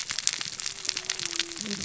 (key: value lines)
label: biophony, cascading saw
recorder: SoundTrap 600 or HydroMoth